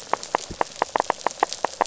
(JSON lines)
{"label": "biophony, knock", "recorder": "SoundTrap 500"}